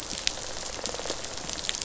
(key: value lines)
label: biophony, rattle response
recorder: SoundTrap 500